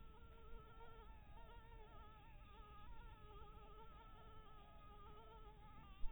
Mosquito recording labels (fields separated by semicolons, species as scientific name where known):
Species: Anopheles maculatus; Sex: female; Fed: blood-fed; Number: one; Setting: cup